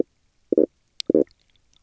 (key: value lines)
label: biophony, stridulation
recorder: SoundTrap 300